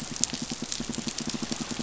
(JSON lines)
{"label": "biophony, pulse", "recorder": "SoundTrap 500"}